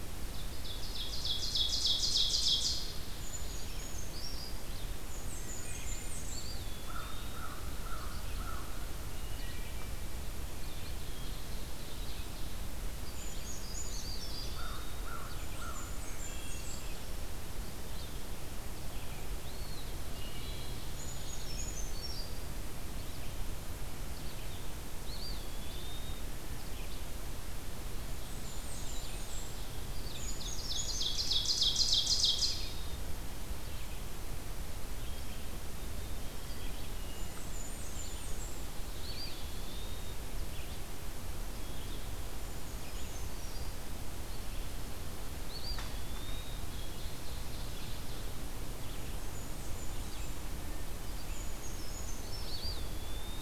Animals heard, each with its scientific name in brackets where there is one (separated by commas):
Eastern Wood-Pewee (Contopus virens), Brown Creeper (Certhia americana), Red-eyed Vireo (Vireo olivaceus), Black-capped Chickadee (Poecile atricapillus), American Crow (Corvus brachyrhynchos), Wood Thrush (Hylocichla mustelina), Blackburnian Warbler (Setophaga fusca), Ovenbird (Seiurus aurocapilla)